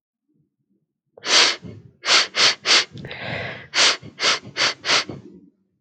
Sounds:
Sniff